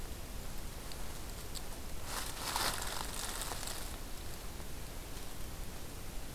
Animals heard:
forest ambience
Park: Hubbard Brook Experimental Forest